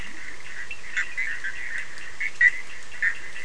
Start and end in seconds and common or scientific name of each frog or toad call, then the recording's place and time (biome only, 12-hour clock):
0.0	0.6	Leptodactylus latrans
0.0	3.4	Bischoff's tree frog
0.0	3.4	Cochran's lime tree frog
Atlantic Forest, 11:15pm